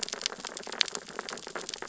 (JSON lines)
{"label": "biophony, sea urchins (Echinidae)", "recorder": "SoundTrap 600 or HydroMoth"}